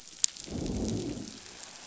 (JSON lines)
{"label": "biophony, growl", "recorder": "SoundTrap 500"}